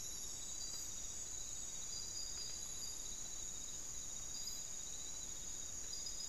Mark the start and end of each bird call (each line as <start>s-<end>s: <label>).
0.0s-6.3s: Hauxwell's Thrush (Turdus hauxwelli)